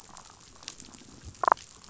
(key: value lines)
label: biophony
recorder: SoundTrap 500

label: biophony, damselfish
recorder: SoundTrap 500